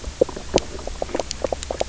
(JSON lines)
{"label": "biophony, knock croak", "recorder": "SoundTrap 300"}